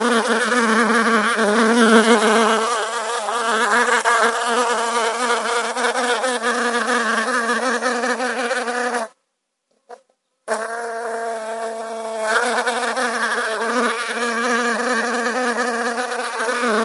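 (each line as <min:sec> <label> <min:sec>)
0:00.0 An insect flying with repeated wing sounds. 0:09.1
0:09.9 An insect flying with short wing sounds. 0:10.0
0:10.3 An insect is flying, its wings buzzing. 0:16.8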